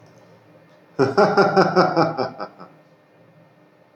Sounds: Laughter